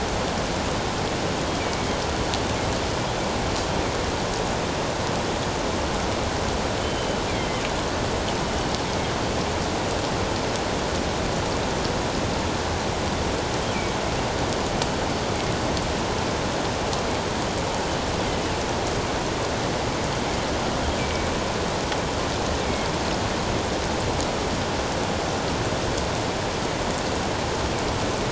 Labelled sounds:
1.6	1.9	killer whale, northern resident, G clan, GG subclan, 2.2 to 2.5 kHz
6.8	7.2	killer whale, northern resident, G clan, GG subclan, 2.9 to 3.1 kHz
21.0	21.3	killer whale, northern resident, G clan, GG subclan, 2.2 to 2.4 kHz

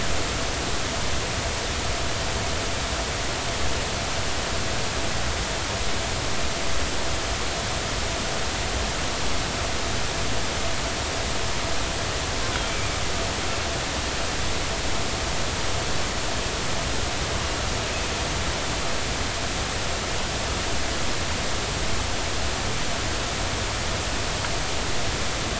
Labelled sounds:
12.7	12.9	killer whale, Bigg's (transient), 2.3 to 2.5 kHz

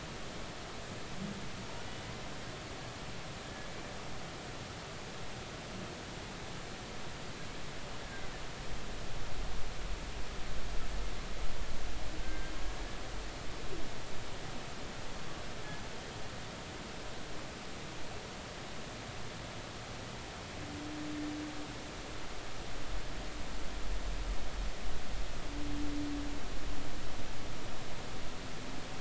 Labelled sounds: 8.0	8.3	humpback whale, 1.5 to 1.7 kHz
12.2	12.5	humpback whale, 1.5 to 1.7 kHz

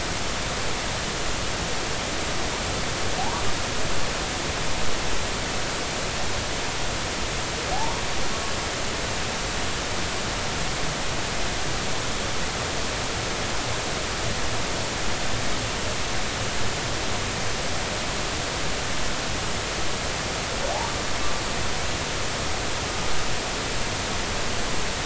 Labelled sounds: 3.2	3.4	humpback whale, 0.80 to 1.2 kHz

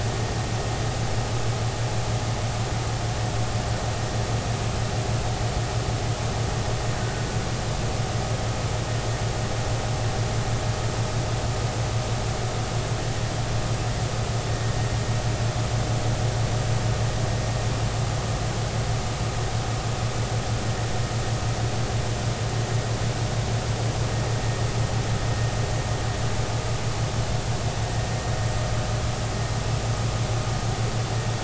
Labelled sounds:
7.0	7.3	killer whale, Bigg's (transient), 1.4 to 1.6 kHz

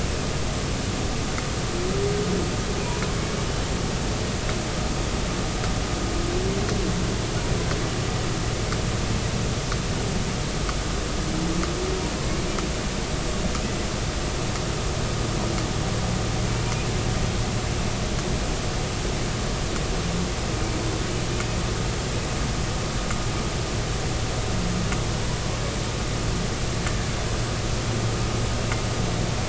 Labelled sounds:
26.8	27.1	humpback whale, 1.6 to 1.8 kHz

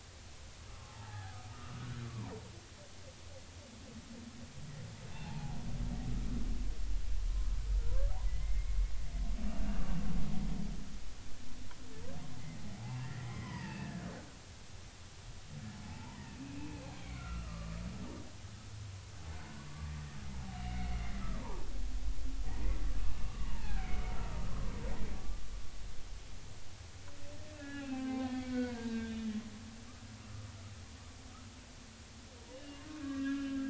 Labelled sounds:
0.7	2.1	humpback whale, 0.80 to 1.9 kHz
5.1	5.6	humpback whale, 0.80 to 2.8 kHz
8.2	8.9	humpback whale, 1.9 to 2.2 kHz
13.0	14.3	humpback whale, 0.83 to 2.8 kHz
15.8	17.7	humpback whale, 0.80 to 2.7 kHz
19.7	20.9	humpback whale, 1.1 to 2.3 kHz
21.2	21.7	humpback whale, 0.83 to 1.3 kHz
23.2	24.0	humpback whale, 0.80 to 2.4 kHz
27.6	29.3	humpback whale, 0.80 to 3.6 kHz
32.5	33.6	humpback whale, 1.5 to 3.1 kHz

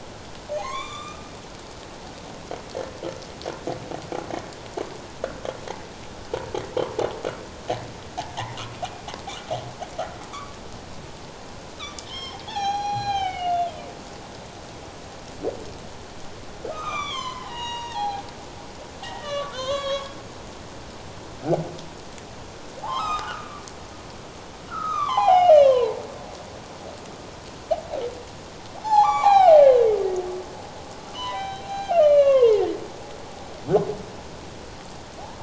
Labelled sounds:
0.5	1.2	humpback whale, 0.94 to 7.3 kHz
11.8	13.7	humpback whale, 0.78 to 6.5 kHz
16.7	20.2	humpback whale, 0.78 to 6.8 kHz
22.8	23.7	humpback whale, 0.78 to 7.8 kHz
24.7	26.0	humpback whale, 0.78 to 3.9 kHz
28.8	29.6	humpback whale, 0.78 to 6.0 kHz
31.1	32.8	humpback whale, 0.84 to 4.2 kHz

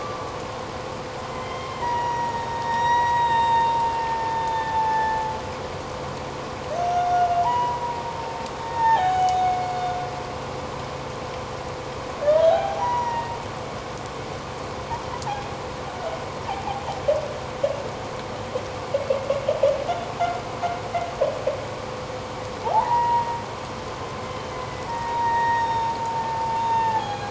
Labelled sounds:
1.3	3.7	humpback whale, 0.84 to 7.5 kHz
4.0	5.2	humpback whale, 0.78 to 5.5 kHz
6.7	7.8	humpback whale, 0.84 to 6.4 kHz
8.6	9.9	humpback whale, 0.78 to 6.8 kHz
12.5	13.3	humpback whale, 0.78 to 5.9 kHz
15.3	15.5	humpback whale, 2.4 to 2.5 kHz
22.6	23.4	humpback whale, 0.78 to 2.0 kHz
24.9	25.9	humpback whale, 0.81 to 5.7 kHz
26.6	27.1	humpback whale, 1.7 to 3.7 kHz

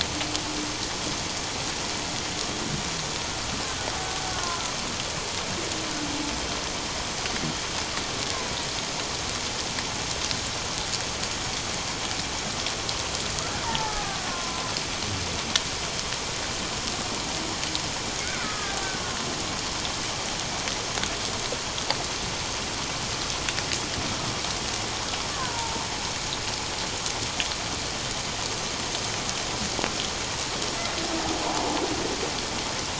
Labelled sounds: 4.3	4.7	killer whale, Bigg's (transient), 0.97 to 1.5 kHz
13.6	14.7	killer whale, Bigg's (transient), 0.81 to 1.3 kHz
18.2	18.8	killer whale, Bigg's (transient), 1.2 to 1.7 kHz
25.3	25.9	killer whale, Bigg's (transient), 0.84 to 1.2 kHz

